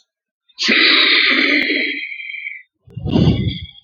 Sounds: Sigh